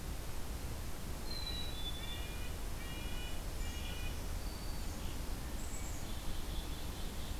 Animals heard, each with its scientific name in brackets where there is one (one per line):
Black-throated Green Warbler (Setophaga virens)
Red-breasted Nuthatch (Sitta canadensis)
Black-capped Chickadee (Poecile atricapillus)